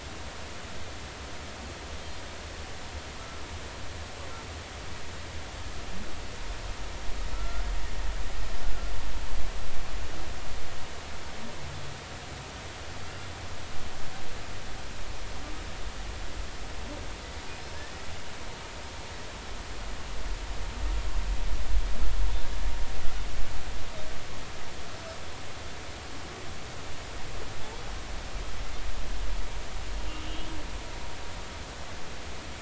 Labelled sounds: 7.3	7.7	humpback whale, 1.3 to 1.5 kHz
17.7	18.0	humpback whale, 1.6 to 1.9 kHz
30.2	30.5	humpback whale, 2.8 to 3.0 kHz

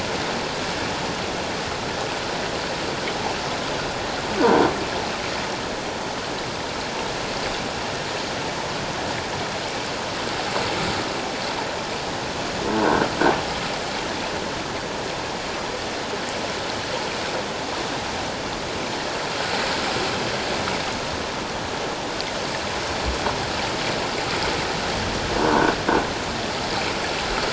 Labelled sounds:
25.4	25.7	croaking sound likely from a nearby submerged object, 1.4 to 1.6 kHz

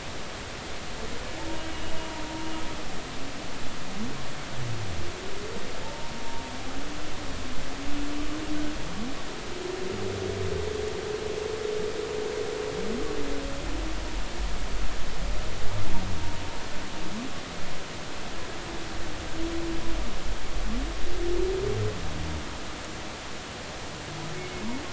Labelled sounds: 5.8	6.1	humpback whale, 0.83 to 1.1 kHz

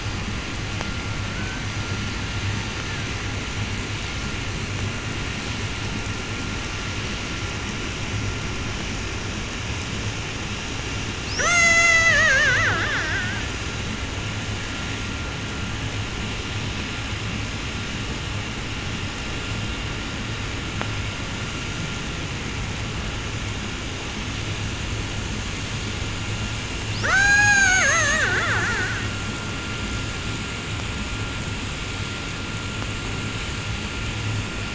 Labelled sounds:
1.1	3.7	killer whale, Bigg's (transient), call T01 and call T02, 0.04 to 4.6 kHz
11.2	13.9	killer whale, 0.04 to 8.0 kHz
26.7	29.3	killer whale, 0.07 to 8.0 kHz

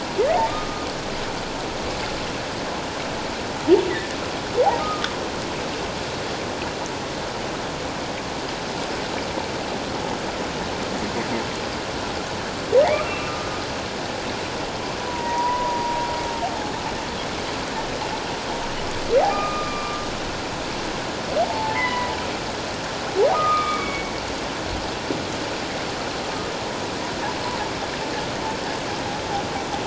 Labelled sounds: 0.5	0.9	humpback whale, 1.2 to 1.3 kHz
3.9	4.2	humpback whale, 1.7 to 2.1 kHz
4.8	5.1	humpback whale, 1.2 to 1.3 kHz
13.0	13.5	humpback whale, 1.1 to 2.8 kHz
15.1	16.0	humpback whale, 0.88 to 1.0 kHz
19.2	20.0	humpback whale, 0.78 to 4.9 kHz
21.4	22.2	humpback whale, 0.78 to 2.2 kHz
23.4	24.1	humpback whale, 1.1 to 3.5 kHz

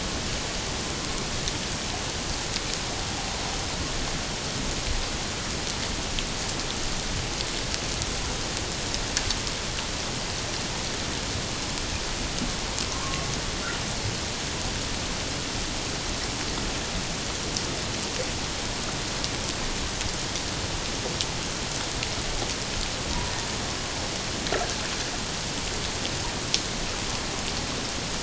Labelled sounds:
12.9	13.3	killer whale, Bigg's (transient), 1.0 to 1.2 kHz

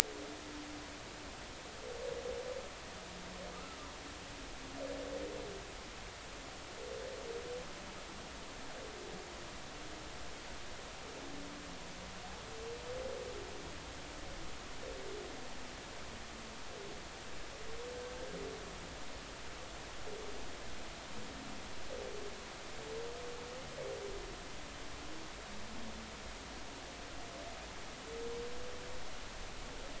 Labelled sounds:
3.5	3.8	humpback whale, 1.2 to 1.4 kHz

